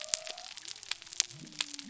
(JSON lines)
{"label": "biophony", "recorder": "SoundTrap 300"}